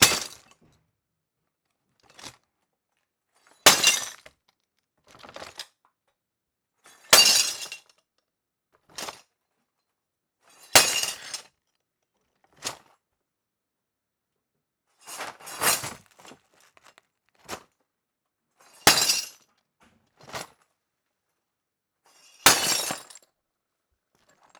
Does the sound of glass breaking continue until the end?
yes